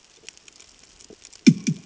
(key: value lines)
label: anthrophony, bomb
recorder: HydroMoth